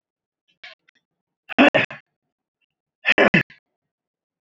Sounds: Throat clearing